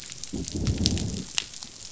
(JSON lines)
{"label": "biophony, growl", "recorder": "SoundTrap 500"}